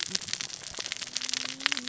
{"label": "biophony, cascading saw", "recorder": "SoundTrap 600 or HydroMoth"}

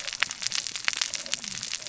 {"label": "biophony, cascading saw", "recorder": "SoundTrap 600 or HydroMoth"}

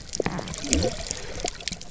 {"label": "biophony", "recorder": "SoundTrap 300"}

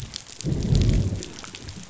{"label": "biophony, growl", "recorder": "SoundTrap 500"}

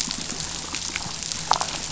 {"label": "biophony", "recorder": "SoundTrap 500"}
{"label": "biophony, damselfish", "recorder": "SoundTrap 500"}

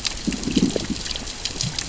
{"label": "biophony, growl", "recorder": "SoundTrap 600 or HydroMoth"}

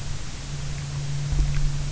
{"label": "anthrophony, boat engine", "recorder": "SoundTrap 300"}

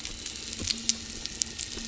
{"label": "anthrophony, boat engine", "recorder": "SoundTrap 300"}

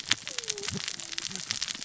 {"label": "biophony, cascading saw", "recorder": "SoundTrap 600 or HydroMoth"}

